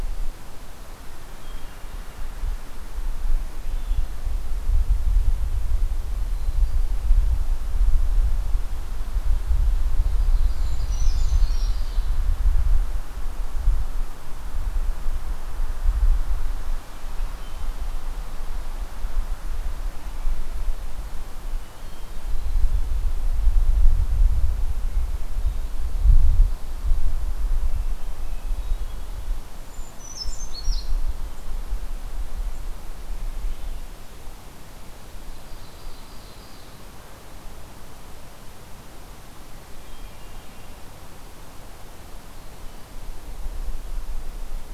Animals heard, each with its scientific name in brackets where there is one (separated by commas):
Ovenbird (Seiurus aurocapilla), Hermit Thrush (Catharus guttatus), Brown Creeper (Certhia americana)